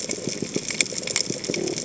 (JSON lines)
{"label": "biophony", "recorder": "HydroMoth"}